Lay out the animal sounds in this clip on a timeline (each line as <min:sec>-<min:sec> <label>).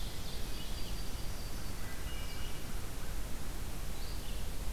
0:00.0-0:00.6 Ovenbird (Seiurus aurocapilla)
0:00.0-0:04.7 Red-eyed Vireo (Vireo olivaceus)
0:00.1-0:01.9 Yellow-rumped Warbler (Setophaga coronata)
0:01.6-0:02.6 Wood Thrush (Hylocichla mustelina)